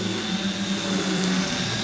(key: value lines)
label: anthrophony, boat engine
recorder: SoundTrap 500